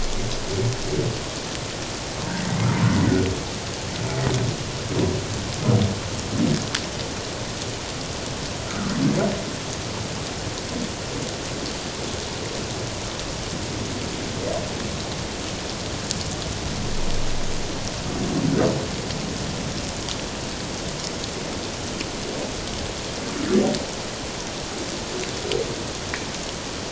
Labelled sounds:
2.4	2.6	humpback whale, 1.8 to 2.0 kHz
8.7	8.9	humpback whale, 1.1 to 1.5 kHz

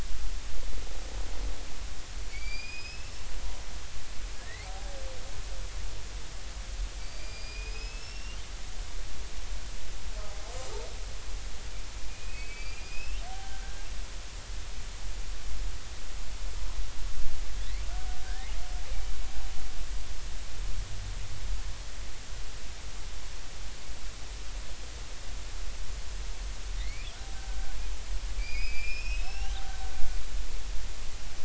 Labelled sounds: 2.3	3.3	killer whale, Bigg's (transient), 2.1 to 5.4 kHz
4.4	5.0	killer whale, Bigg's (transient), 0.80 to 2.2 kHz
7.0	8.4	killer whale, Bigg's (transient), 2.3 to 5.7 kHz
12.1	13.9	killer whale, Bigg's (transient), 1.5 to 5.5 kHz
18.2	18.5	killer whale, Bigg's (transient), 1.5 to 1.9 kHz
26.8	27.1	killer whale, Bigg's (transient), 1.9 to 2.7 kHz
28.4	29.8	killer whale, Bigg's (transient), 0.80 to 5.6 kHz

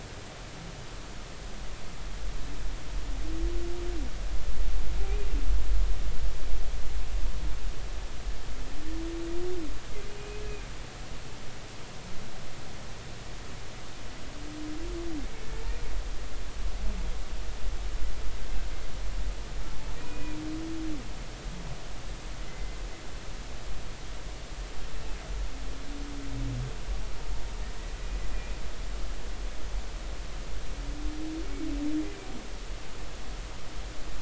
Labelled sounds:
10.2	10.4	humpback whale, 2.4 to 2.6 kHz
20.0	20.4	humpback whale, 2.3 to 2.7 kHz
22.5	22.8	humpback whale, 2.0 to 2.1 kHz

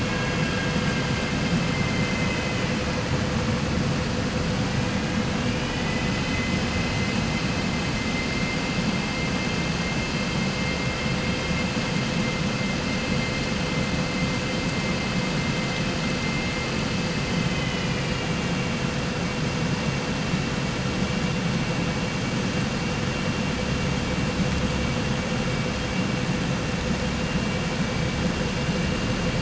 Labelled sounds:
0.0	1.3	vessel noise, 1.0 to 3.0 kHz
1.6	2.6	vessel noise, 1.6 to 3.1 kHz

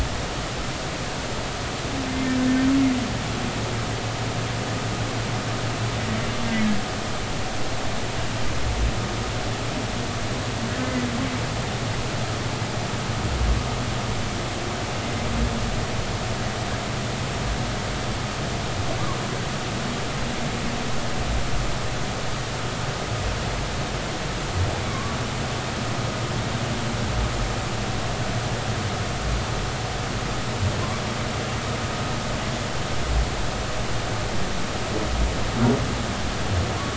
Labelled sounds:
24.9	25.2	humpback whale, 1.0 to 1.2 kHz

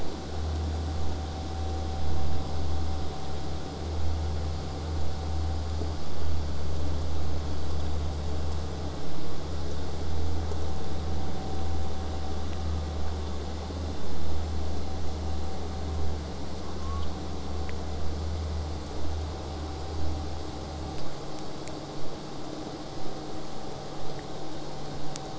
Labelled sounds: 11.0	16.0	vessel noise, 0 to 8.0 kHz

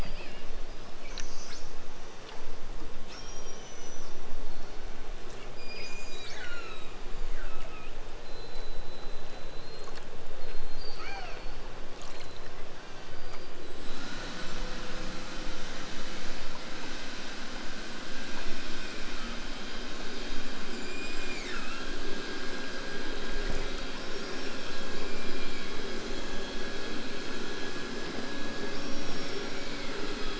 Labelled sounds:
1.0	1.8	killer whale, southern Alaska resident, 2.0 to 8.0 kHz
2.9	4.2	killer whale, southern Alaska resident, 1.9 to 8.0 kHz
5.5	7.9	killer whale, southern Alaska resident, 0.97 to 8.0 kHz
10.7	11.7	killer whale, southern Alaska resident, 0.46 to 7.0 kHz
12.7	13.2	killer whale, southern Alaska resident, 0.74 to 6.5 kHz

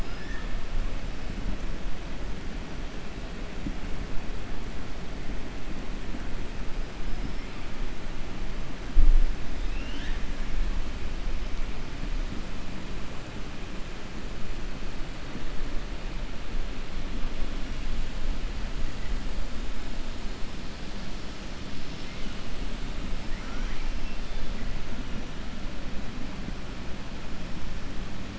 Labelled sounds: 0.0	0.5	killer whale, 1.3 to 2.7 kHz
9.5	10.2	killer whale, 1.5 to 6.3 kHz

